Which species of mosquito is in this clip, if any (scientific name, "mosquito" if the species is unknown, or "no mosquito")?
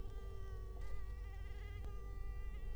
Culex quinquefasciatus